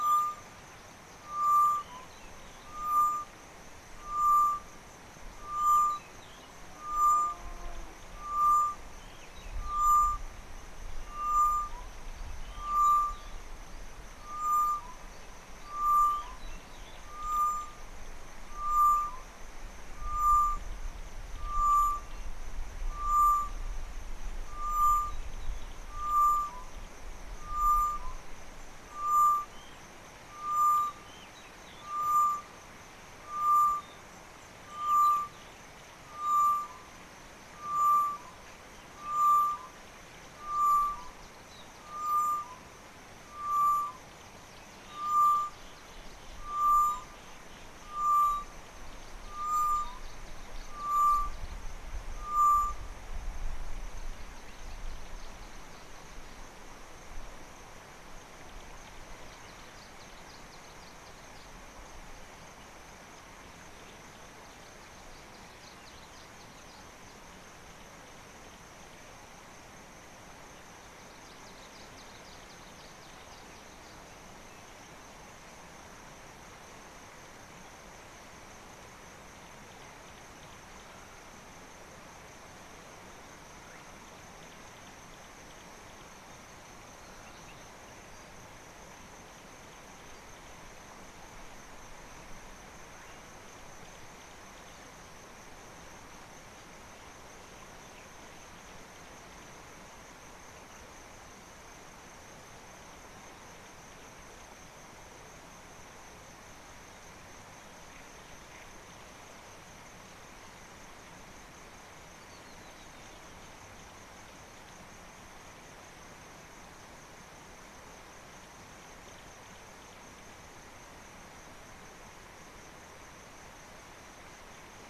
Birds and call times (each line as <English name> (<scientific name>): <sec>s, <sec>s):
Tropical Boubou (Laniarius major): 1.5s, 3.0s, 4.4s, 8.5s, 12.9s, 17.5s, 20.3s, 23.3s, 26.2s, 29.4s, 32.0s, 35.0s, 37.9s, 39.4s, 43.5s, 46.7s, 49.6s, 52.5s
Red-faced Crombec (Sylvietta whytii): 71.8s
Spectacled Weaver (Ploceus ocularis): 112.5s